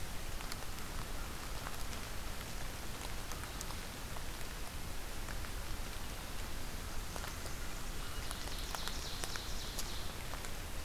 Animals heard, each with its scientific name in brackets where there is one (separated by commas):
Ovenbird (Seiurus aurocapilla)